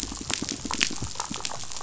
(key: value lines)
label: biophony
recorder: SoundTrap 500